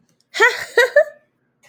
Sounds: Laughter